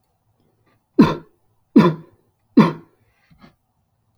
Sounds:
Cough